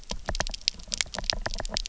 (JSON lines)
{"label": "biophony, knock", "recorder": "SoundTrap 300"}